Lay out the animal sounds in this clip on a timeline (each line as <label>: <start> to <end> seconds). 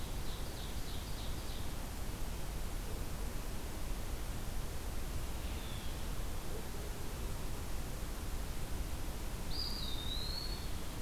Ovenbird (Seiurus aurocapilla): 0.0 to 1.7 seconds
Red-eyed Vireo (Vireo olivaceus): 5.4 to 6.0 seconds
Eastern Wood-Pewee (Contopus virens): 9.4 to 10.7 seconds